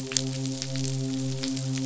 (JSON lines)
{"label": "biophony, midshipman", "recorder": "SoundTrap 500"}